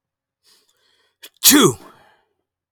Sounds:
Sneeze